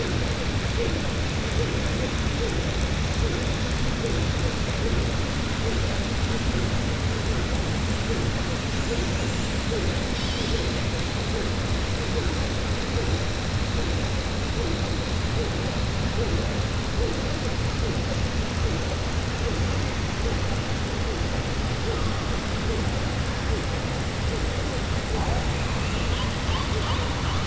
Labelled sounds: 25.7	26.3	killer whale, southern resident, 2.5 to 3.7 kHz

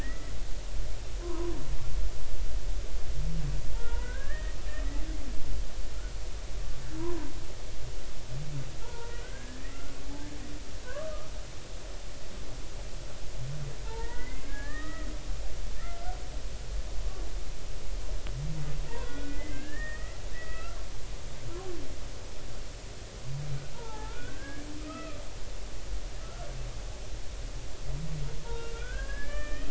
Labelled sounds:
1.0	1.6	humpback whale, 0.90 to 2.0 kHz
3.7	4.6	humpback whale, 0.83 to 2.0 kHz
7.0	7.3	humpback whale, 0.90 to 1.1 kHz
8.8	9.9	humpback whale, 0.86 to 2.1 kHz
10.9	11.3	humpback whale, 0.96 to 1.3 kHz
13.9	16.2	humpback whale, 0.83 to 2.2 kHz
18.9	20.8	humpback whale, 0.86 to 3.5 kHz
23.7	25.2	humpback whale, 0.80 to 2.7 kHz
26.2	26.5	humpback whale, 1.3 to 1.4 kHz
28.4	29.6	humpback whale, 0.86 to 5.1 kHz

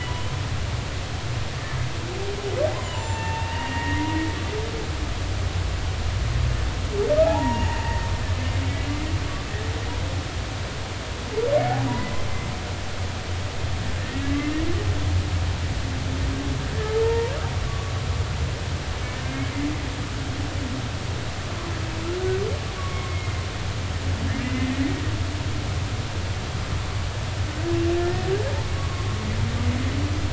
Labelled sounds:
2.8	4.0	humpback whale, 0.83 to 7.3 kHz
7.2	8.1	humpback whale, 0.80 to 2.0 kHz
14.0	14.5	humpback whale, 1.7 to 2.1 kHz
17.0	17.9	humpback whale, 0.86 to 1.2 kHz
19.2	19.5	humpback whale, 2.1 to 2.3 kHz
22.8	23.4	humpback whale, 1.1 to 2.2 kHz
24.4	24.7	humpback whale, 2.0 to 2.9 kHz
28.0	29.1	humpback whale, 1.0 to 1.9 kHz

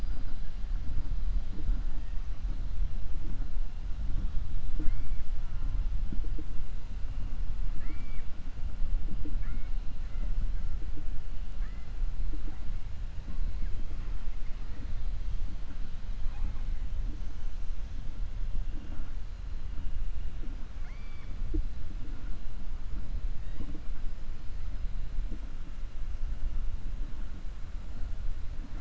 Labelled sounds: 20.7	21.3	killer whale, 0.75 to 4.8 kHz

